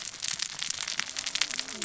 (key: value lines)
label: biophony, cascading saw
recorder: SoundTrap 600 or HydroMoth